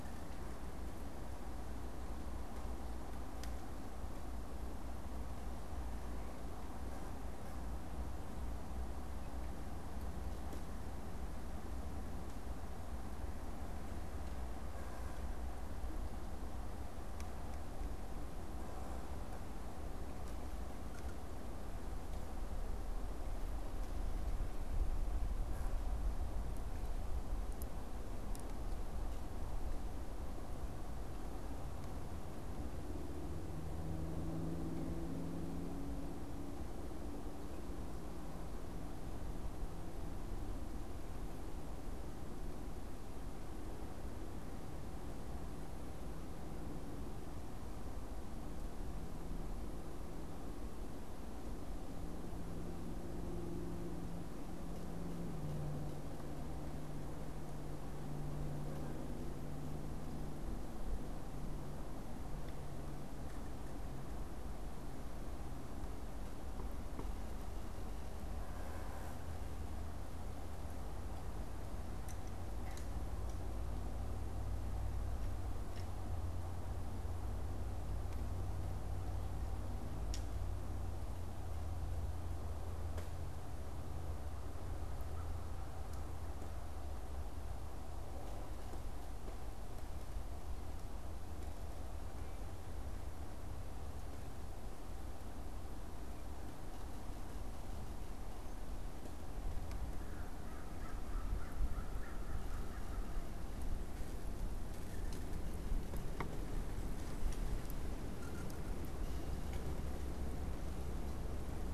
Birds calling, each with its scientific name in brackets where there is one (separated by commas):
American Crow (Corvus brachyrhynchos)